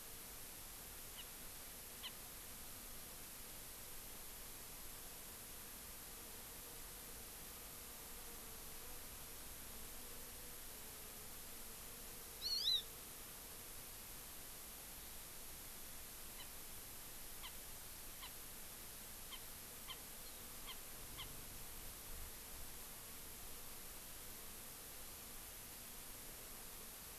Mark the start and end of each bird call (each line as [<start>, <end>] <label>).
[1.11, 1.31] Erckel's Francolin (Pternistis erckelii)
[2.01, 2.11] Erckel's Francolin (Pternistis erckelii)
[12.41, 12.81] Hawaii Amakihi (Chlorodrepanis virens)
[16.31, 16.51] Erckel's Francolin (Pternistis erckelii)
[17.41, 17.51] Erckel's Francolin (Pternistis erckelii)
[18.21, 18.31] Erckel's Francolin (Pternistis erckelii)
[19.31, 19.41] Erckel's Francolin (Pternistis erckelii)
[19.91, 20.01] Erckel's Francolin (Pternistis erckelii)
[20.61, 20.71] Erckel's Francolin (Pternistis erckelii)
[21.11, 21.31] Erckel's Francolin (Pternistis erckelii)